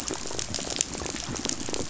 {"label": "biophony, rattle", "recorder": "SoundTrap 500"}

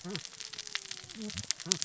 {"label": "biophony, cascading saw", "recorder": "SoundTrap 600 or HydroMoth"}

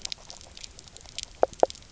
{"label": "biophony, knock croak", "recorder": "SoundTrap 300"}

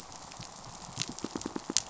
{"label": "biophony, pulse", "recorder": "SoundTrap 500"}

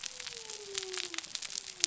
{"label": "biophony", "recorder": "SoundTrap 300"}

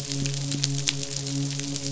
{"label": "biophony, midshipman", "recorder": "SoundTrap 500"}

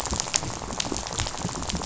{"label": "biophony, rattle", "recorder": "SoundTrap 500"}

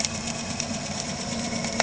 {"label": "anthrophony, boat engine", "recorder": "HydroMoth"}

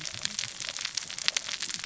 {"label": "biophony, cascading saw", "recorder": "SoundTrap 600 or HydroMoth"}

